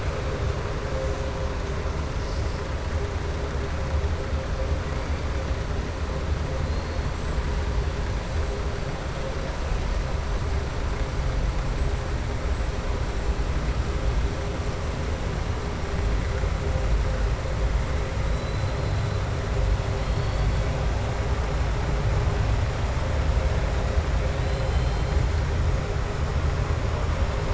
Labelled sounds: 18.3	19.1	killer whale, southern resident, 3.9 to 4.3 kHz
20.0	20.6	killer whale, southern resident, 3.3 to 4.6 kHz

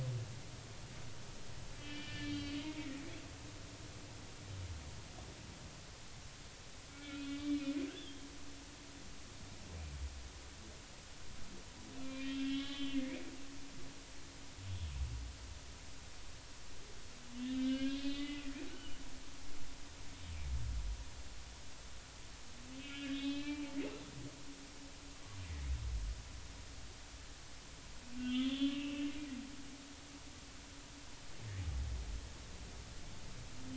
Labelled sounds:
1.8	2.9	humpback whale, 1.7 to 4.7 kHz
6.9	7.7	humpback whale, 2.2 to 3.8 kHz
7.9	8.2	humpback whale, 3.1 to 3.6 kHz
12.0	13.2	humpback whale, 1.1 to 4.0 kHz
17.4	18.4	humpback whale, 1.5 to 4.4 kHz
22.8	23.8	humpback whale, 1.6 to 4.1 kHz
28.2	29.1	humpback whale, 1.1 to 3.6 kHz

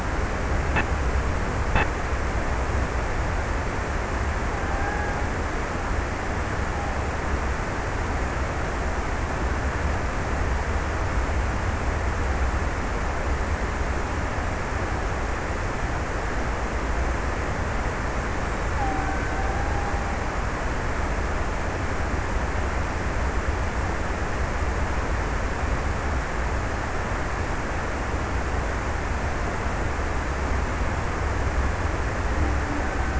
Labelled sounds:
4.1	5.8	killer whale, Bigg's (transient), 0.52 to 1.9 kHz
18.4	20.4	killer whale, Bigg's (transient), 0.49 to 2.0 kHz

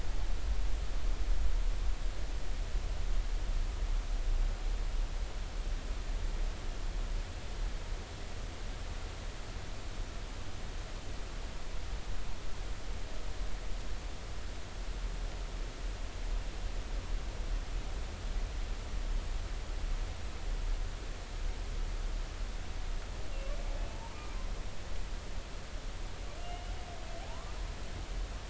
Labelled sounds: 23.9	24.2	humpback whale, 0.83 to 1.1 kHz
26.4	27.6	humpback whale, 0.80 to 3.0 kHz

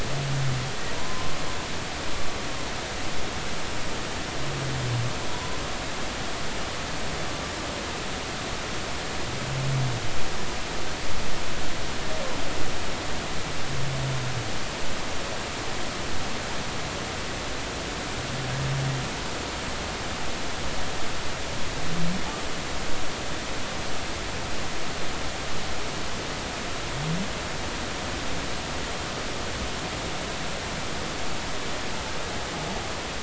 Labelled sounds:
0.9	1.3	humpback whale, 0.93 to 1.1 kHz
5.3	5.6	humpback whale, 0.93 to 1.1 kHz

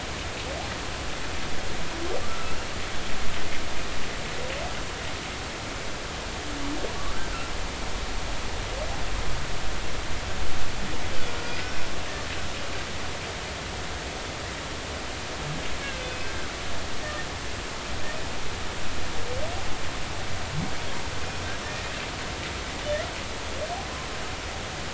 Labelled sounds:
2.3	2.6	humpback whale, 1.2 to 1.4 kHz
12.4	12.8	humpback whale, 1.4 to 5.0 kHz
15.8	16.5	humpback whale, 1.3 to 2.8 kHz
21.6	21.9	humpback whale, 1.7 to 1.9 kHz

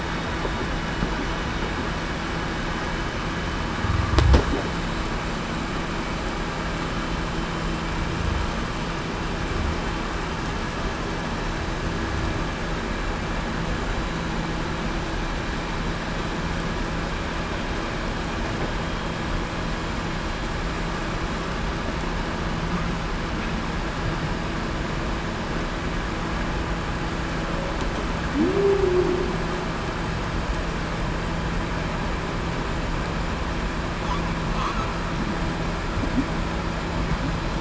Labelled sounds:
28.5	29.1	humpback whale, 0.33 to 0.42 kHz

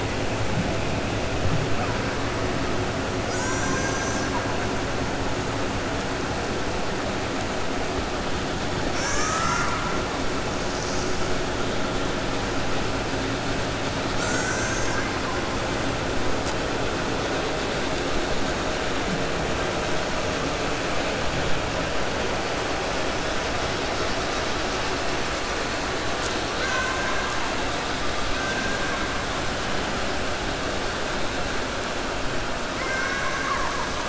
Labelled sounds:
3.3	4.5	killer whale, 0.95 to 2.5 kHz
8.9	10.0	killer whale, 0.58 to 2.9 kHz
14.1	15.1	killer whale, 0.90 to 2.4 kHz
32.7	33.9	killer whale, 0.92 to 2.3 kHz

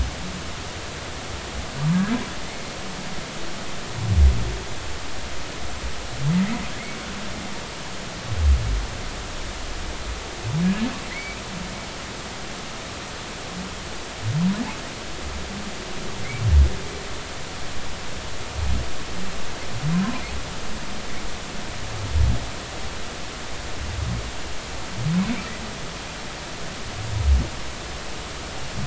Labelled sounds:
2.5	2.7	humpback whale, 2.0 to 2.2 kHz
10.6	11.4	humpback whale, 1.6 to 2.5 kHz

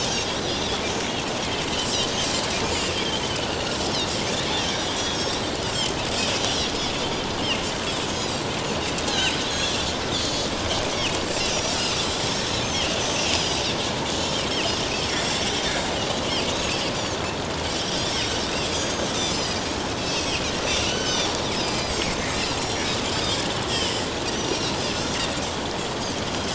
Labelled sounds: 0.5	0.8	Pacific white-sided dolphin, 3.2 to 3.6 kHz
2.9	3.2	Pacific white-sided dolphin, 3.0 to 3.5 kHz
3.8	4.1	Pacific white-sided dolphin, 2.7 to 3.3 kHz
4.9	5.4	Pacific white-sided dolphin, 3.2 to 6.1 kHz
6.4	6.7	Pacific white-sided dolphin, 5.4 to 5.9 kHz
8.1	8.5	Pacific white-sided dolphin, 4.5 to 7.1 kHz
9.0	9.8	Pacific white-sided dolphin, 1.6 to 6.3 kHz
10.2	10.5	Pacific white-sided dolphin, 3.9 to 4.5 kHz
11.5	13.6	Pacific white-sided dolphin, 2.6 to 6.2 kHz
15.1	15.4	Pacific white-sided dolphin, 3.2 to 3.5 kHz
16.0	16.3	Pacific white-sided dolphin, 3.8 to 4.6 kHz
17.9	18.2	Pacific white-sided dolphin, 3.1 to 5.7 kHz
18.7	19.7	Pacific white-sided dolphin, 4.7 to 7.4 kHz
20.0	20.5	Pacific white-sided dolphin, 2.5 to 6.0 kHz
20.8	22.9	Pacific white-sided dolphin, 1.4 to 8.0 kHz
23.7	25.1	Pacific white-sided dolphin, 2.6 to 7.5 kHz

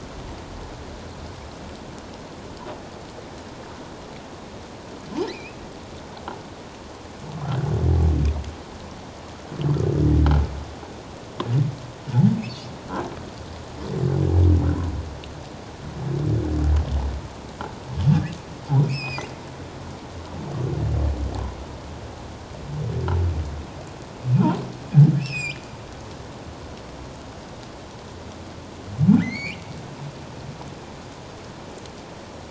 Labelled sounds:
5.2	5.6	humpback whale, 2.2 to 4.2 kHz
18.8	19.2	humpback whale, 2.2 to 7.9 kHz
25.2	25.6	humpback whale, 2.3 to 7.6 kHz
29.2	29.6	humpback whale, 1.7 to 4.6 kHz

